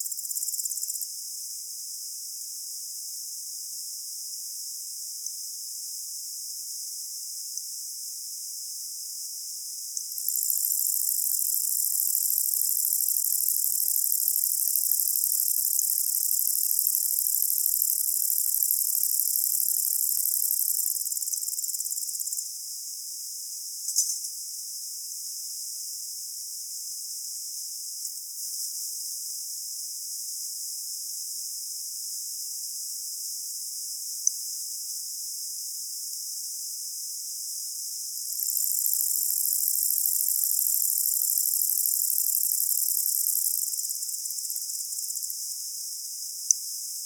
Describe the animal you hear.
Conocephalus fuscus, an orthopteran